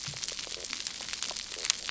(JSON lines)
{"label": "biophony, stridulation", "recorder": "SoundTrap 300"}